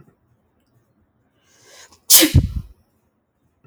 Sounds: Sneeze